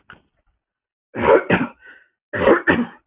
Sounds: Throat clearing